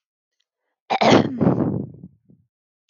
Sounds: Throat clearing